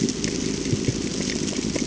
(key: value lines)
label: ambient
recorder: HydroMoth